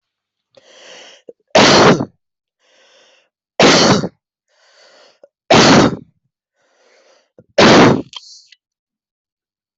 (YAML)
expert_labels:
- quality: good
  cough_type: dry
  dyspnea: false
  wheezing: false
  stridor: false
  choking: false
  congestion: false
  nothing: true
  diagnosis: lower respiratory tract infection
  severity: mild